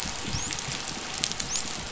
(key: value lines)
label: biophony, dolphin
recorder: SoundTrap 500